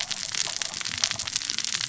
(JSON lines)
{"label": "biophony, cascading saw", "recorder": "SoundTrap 600 or HydroMoth"}